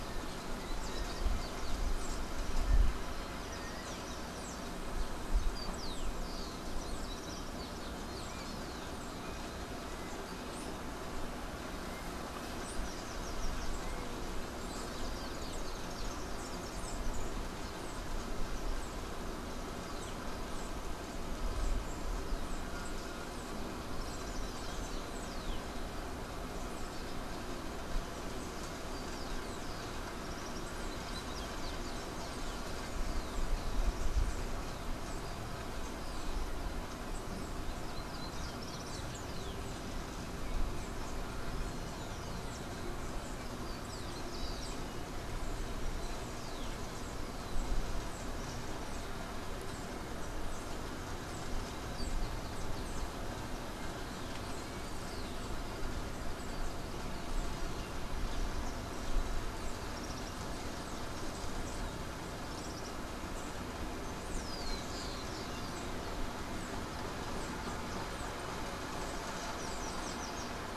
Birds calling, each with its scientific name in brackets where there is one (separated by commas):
Common Tody-Flycatcher (Todirostrum cinereum), Yellow-faced Grassquit (Tiaris olivaceus), Rufous-collared Sparrow (Zonotrichia capensis), unidentified bird